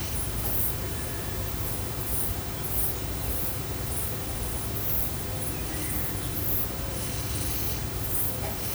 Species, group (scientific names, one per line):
Ephippiger diurnus
Orthoptera